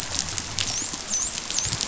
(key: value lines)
label: biophony, dolphin
recorder: SoundTrap 500